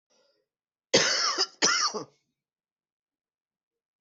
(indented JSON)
{
  "expert_labels": [
    {
      "quality": "good",
      "cough_type": "dry",
      "dyspnea": false,
      "wheezing": true,
      "stridor": false,
      "choking": false,
      "congestion": false,
      "nothing": false,
      "diagnosis": "obstructive lung disease",
      "severity": "mild"
    }
  ],
  "age": 42,
  "gender": "male",
  "respiratory_condition": true,
  "fever_muscle_pain": false,
  "status": "symptomatic"
}